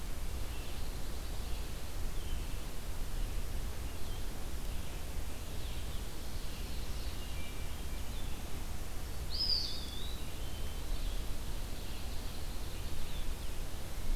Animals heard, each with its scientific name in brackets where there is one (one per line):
Pine Warbler (Setophaga pinus)
Red-eyed Vireo (Vireo olivaceus)
Hermit Thrush (Catharus guttatus)
Eastern Wood-Pewee (Contopus virens)
Blue-headed Vireo (Vireo solitarius)